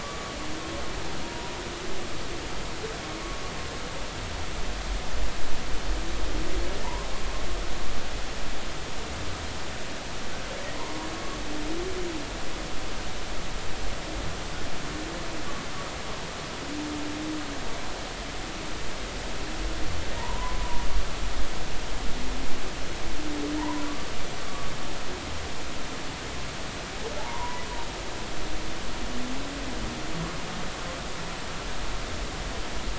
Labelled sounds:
0.0	0.3	humpback whale, 1.1 to 1.3 kHz
1.2	1.5	humpback whale, 0.93 to 0.99 kHz
6.8	7.1	humpback whale, 0.86 to 1.1 kHz
10.7	11.0	humpback whale, 0.86 to 1.1 kHz
20.2	20.8	humpback whale, 0.86 to 1.1 kHz
23.6	23.9	humpback whale, 0.83 to 1.1 kHz
24.5	24.7	humpback whale, 1.1 to 1.2 kHz
27.2	27.6	humpback whale, 0.80 to 1.1 kHz

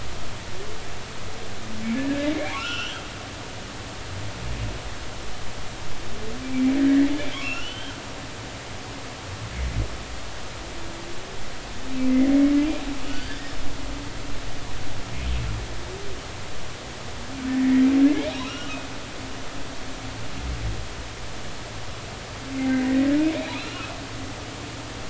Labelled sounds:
1.9	3.0	humpback whale, 1.2 to 3.4 kHz
7.1	8.0	humpback whale, 1.2 to 3.6 kHz
13.0	13.5	humpback whale, 1.4 to 3.2 kHz
17.6	18.7	humpback whale, 1.2 to 2.9 kHz
22.6	23.9	humpback whale, 1.2 to 4.1 kHz

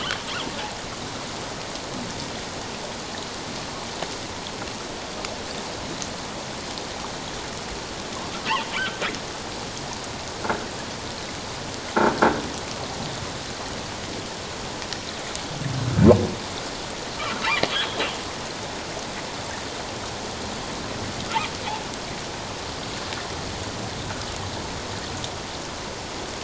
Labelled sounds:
8.7	9.0	humpback whale, 1.3 to 3.2 kHz
12.1	12.3	croaking sound likely from a nearby submerged object, 1.4 to 1.7 kHz
17.2	18.0	humpback whale, 1.1 to 3.4 kHz

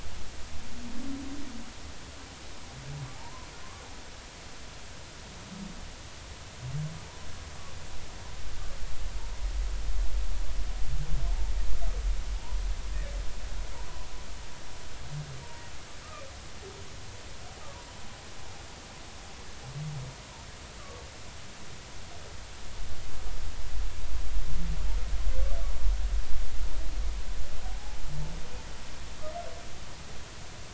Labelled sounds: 3.1	3.5	humpback whale, 0.80 to 1.1 kHz

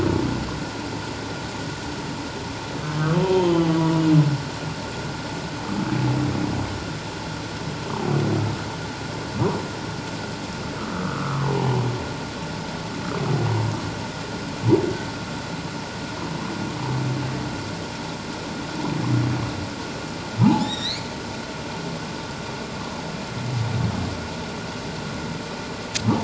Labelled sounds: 3.2	4.0	humpback whale, 0.88 to 3.2 kHz
10.8	11.8	humpback whale, 0.78 to 1.5 kHz
20.4	21.1	humpback whale, 0.78 to 4.8 kHz

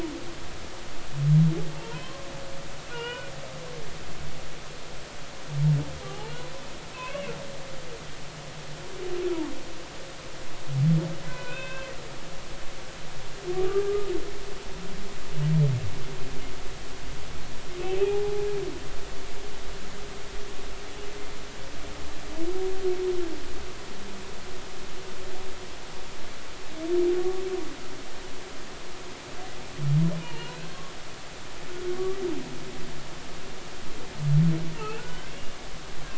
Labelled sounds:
1.8	2.3	humpback whale, 0.80 to 1.1 kHz
2.9	3.3	humpback whale, 0.90 to 3.0 kHz
6.9	7.3	humpback whale, 0.96 to 2.9 kHz
11.2	11.9	humpback whale, 0.96 to 3.7 kHz
13.8	14.1	humpback whale, 1.1 to 1.3 kHz
17.8	18.4	humpback whale, 0.80 to 2.8 kHz
30.2	30.6	humpback whale, 0.86 to 4.3 kHz
31.9	32.2	humpback whale, 1.1 to 1.2 kHz
34.7	35.5	humpback whale, 1.4 to 2.9 kHz

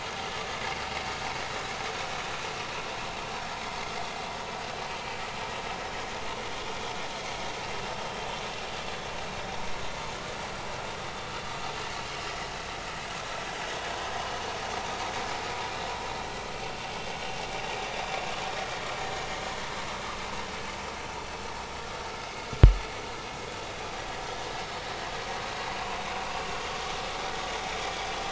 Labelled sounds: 24.6	24.8	vessel noise, 5.2 to 5.4 kHz

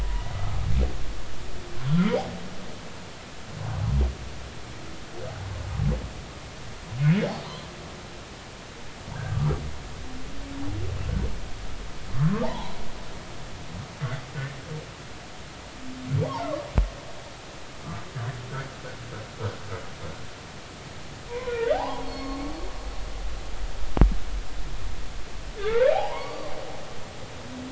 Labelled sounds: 0.0	0.3	humpback whale, 0.93 to 2.0 kHz
1.9	2.1	humpback whale, 1.2 to 1.5 kHz
9.3	9.6	humpback whale, 1.1 to 1.4 kHz
12.1	12.8	humpback whale, 0.80 to 1.5 kHz
21.3	22.4	humpback whale, 0.80 to 4.4 kHz
25.6	26.5	humpback whale, 0.80 to 4.7 kHz

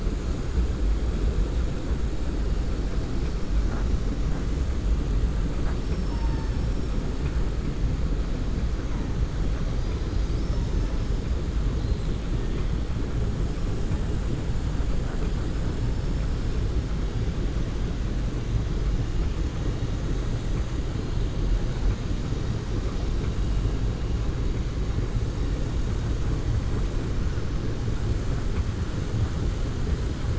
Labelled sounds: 5.7	6.5	killer whale, southern resident, 4.5 to 5.7 kHz

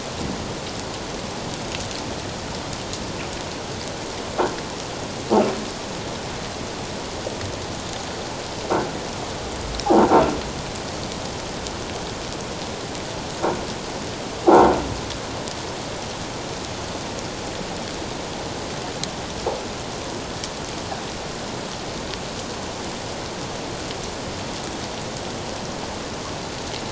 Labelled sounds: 9.8	10.1	croaking sound likely from a nearby submerged object, 0.78 to 1.0 kHz
14.5	14.7	croaking sound likely from a nearby submerged object, 0.78 to 1.1 kHz

